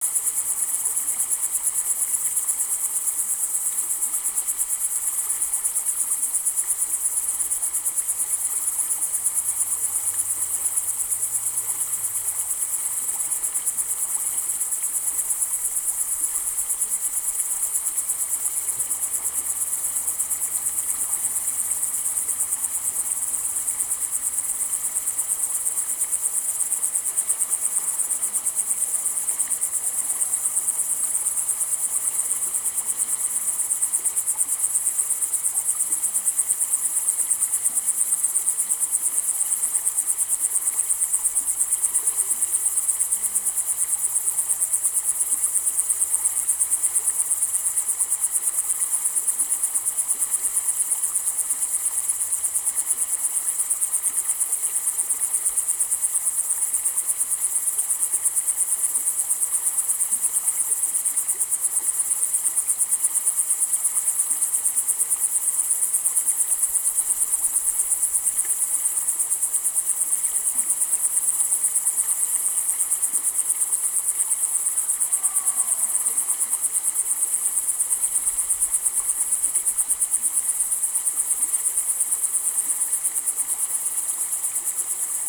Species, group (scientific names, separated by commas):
Tettigonia cantans, Orthoptera